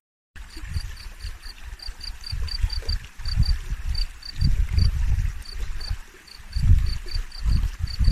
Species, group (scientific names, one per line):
Gryllus campestris
Orthoptera